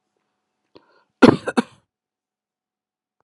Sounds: Cough